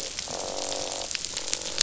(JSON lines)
{"label": "biophony, croak", "recorder": "SoundTrap 500"}